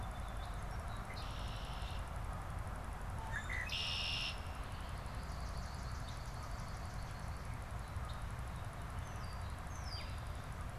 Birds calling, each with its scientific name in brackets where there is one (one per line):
Swamp Sparrow (Melospiza georgiana)
Song Sparrow (Melospiza melodia)
Red-winged Blackbird (Agelaius phoeniceus)